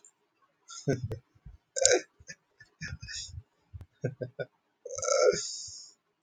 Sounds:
Laughter